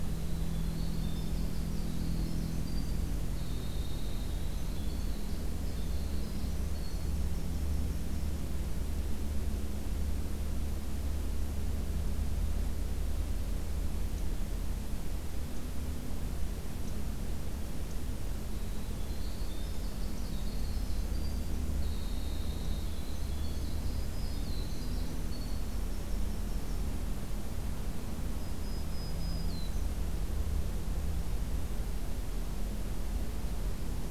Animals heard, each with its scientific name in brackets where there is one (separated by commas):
Winter Wren (Troglodytes hiemalis), Black-throated Green Warbler (Setophaga virens)